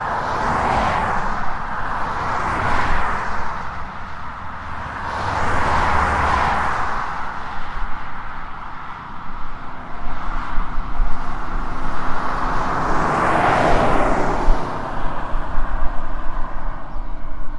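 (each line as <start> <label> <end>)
0.0 Multiple cars drive along a road with a steady sound. 17.6
0.0 A car drives by quickly on a paved road. 3.9
4.8 A car drives by quickly on a paved road. 7.6
11.4 A car approaches and then drives by on a paved road. 15.0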